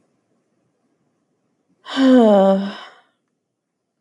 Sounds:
Sigh